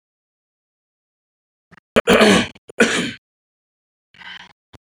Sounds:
Throat clearing